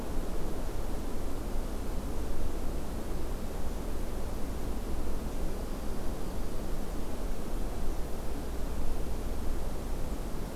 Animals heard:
forest ambience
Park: Acadia National Park